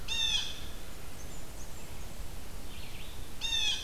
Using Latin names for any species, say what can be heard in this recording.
Cyanocitta cristata, Vireo olivaceus, Setophaga fusca